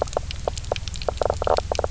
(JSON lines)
{"label": "biophony, knock croak", "recorder": "SoundTrap 300"}